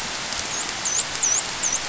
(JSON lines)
{"label": "biophony, dolphin", "recorder": "SoundTrap 500"}